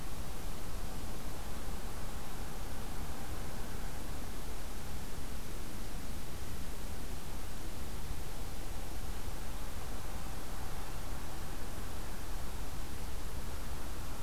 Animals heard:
forest ambience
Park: Acadia National Park